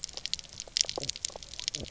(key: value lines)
label: biophony, knock croak
recorder: SoundTrap 300